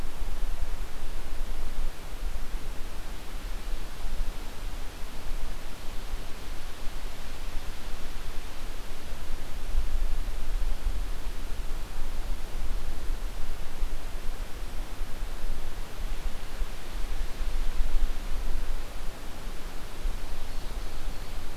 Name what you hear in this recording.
Ovenbird